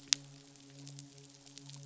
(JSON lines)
{"label": "biophony, midshipman", "recorder": "SoundTrap 500"}